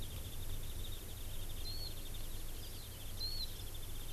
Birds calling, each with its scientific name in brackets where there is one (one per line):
Warbling White-eye (Zosterops japonicus)